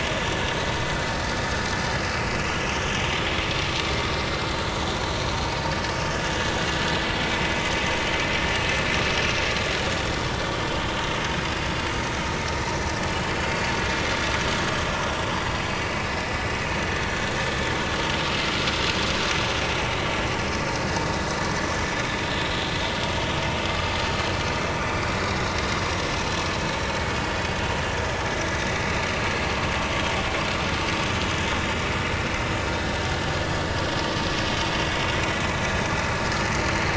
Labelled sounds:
0.2	0.4	vessel noise, 1.7 to 1.8 kHz
2.4	2.7	vessel noise, 2.5 to 3.2 kHz
22.2	22.5	vessel noise, 3.3 to 3.5 kHz

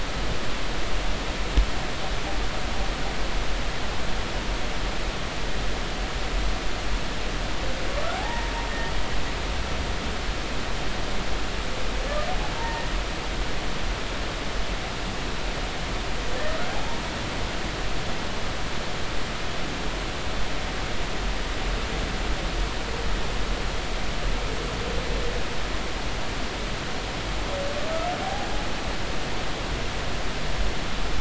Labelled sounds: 8.1	8.5	humpback whale, 0.80 to 1.9 kHz
12.5	12.9	humpback whale, 0.86 to 1.9 kHz
28.2	28.5	humpback whale, 0.80 to 0.86 kHz

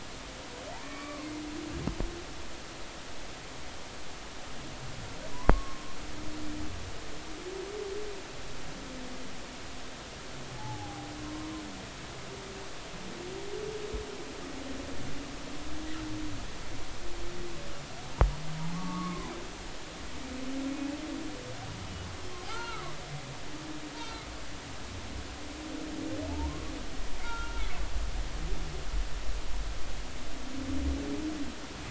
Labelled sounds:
0.7	1.3	humpback whale, 0.80 to 2.4 kHz
5.3	5.9	humpback whale, 0.93 to 5.5 kHz
10.5	11.5	humpback whale, 0.80 to 1.1 kHz
18.7	19.3	humpback whale, 0.80 to 1.3 kHz
22.5	22.9	humpback whale, 0.80 to 1.5 kHz
24.0	24.3	humpback whale, 1.2 to 4.1 kHz
26.3	26.7	humpback whale, 0.83 to 1.2 kHz
27.2	27.7	humpback whale, 1.2 to 1.5 kHz

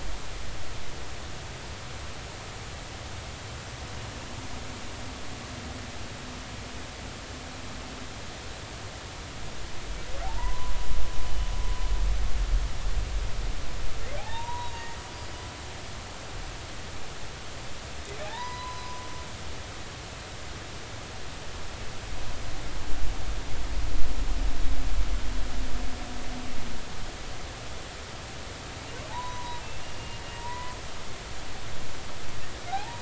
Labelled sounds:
10.2	10.7	humpback whale, 0.80 to 1.2 kHz
14.2	15.0	humpback whale, 0.80 to 3.9 kHz
18.2	19.0	humpback whale, 0.80 to 4.0 kHz
19.7	19.9	humpback whale, 4.9 to 5.0 kHz
29.1	30.8	humpback whale, 0.80 to 2.9 kHz

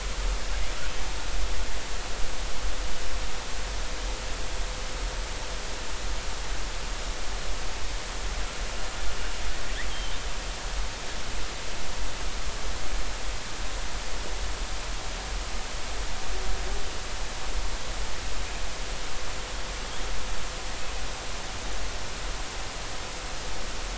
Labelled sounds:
9.9	10.2	killer whale, southern resident, J clan, L pod, call S02iii, 3.0 to 3.3 kHz

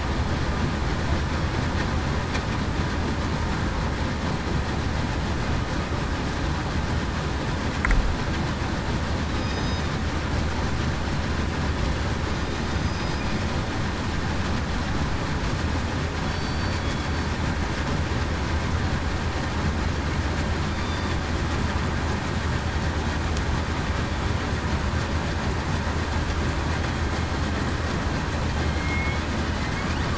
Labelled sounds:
9.3	9.8	killer whale, southern resident, 3.7 to 3.8 kHz
12.7	13.1	killer whale, southern resident, 6.1 to 6.3 kHz
16.3	16.8	killer whale, southern resident, 4.5 to 4.6 kHz
20.7	21.1	killer whale, southern resident, 3.5 to 4.8 kHz
28.6	29.2	killer whale, southern resident, 2.1 to 2.2 kHz

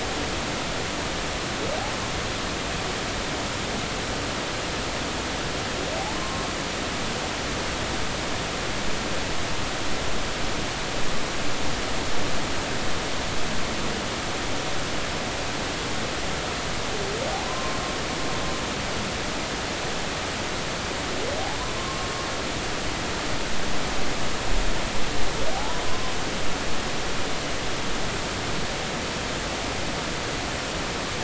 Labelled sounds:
6.1	6.4	humpback whale, 0.99 to 1.1 kHz
17.3	17.8	humpback whale, 0.80 to 1.1 kHz
21.8	22.1	humpback whale, 1.0 to 1.2 kHz
25.5	26.1	humpback whale, 0.80 to 1.2 kHz

